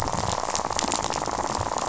{"label": "biophony, rattle", "recorder": "SoundTrap 500"}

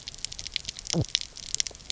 {"label": "biophony", "recorder": "SoundTrap 300"}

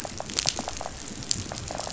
{"label": "biophony, rattle", "recorder": "SoundTrap 500"}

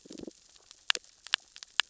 {"label": "biophony, damselfish", "recorder": "SoundTrap 600 or HydroMoth"}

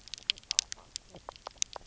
{"label": "biophony, knock croak", "recorder": "SoundTrap 300"}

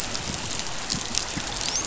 {"label": "biophony, dolphin", "recorder": "SoundTrap 500"}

